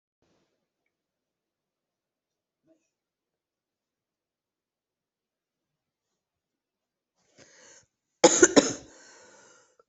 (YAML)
expert_labels:
- quality: good
  cough_type: unknown
  dyspnea: false
  wheezing: false
  stridor: false
  choking: false
  congestion: false
  nothing: true
  diagnosis: healthy cough
  severity: pseudocough/healthy cough
age: 46
gender: female
respiratory_condition: true
fever_muscle_pain: false
status: symptomatic